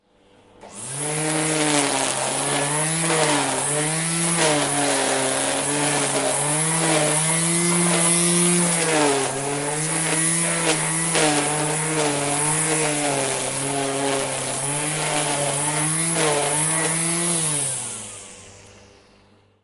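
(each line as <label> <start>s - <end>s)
An electric mower is running loudly and repeatedly outside. 0.7s - 18.5s
An electric trimmer is working loudly and repeatedly. 0.7s - 18.5s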